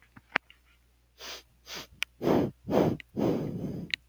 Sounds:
Sniff